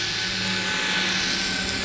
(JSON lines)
{"label": "anthrophony, boat engine", "recorder": "SoundTrap 500"}